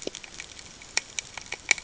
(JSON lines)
{"label": "ambient", "recorder": "HydroMoth"}